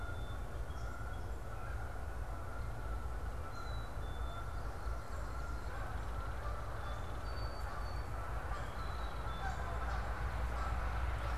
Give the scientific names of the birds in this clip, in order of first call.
Branta canadensis, Melospiza melodia, Poecile atricapillus, Megaceryle alcyon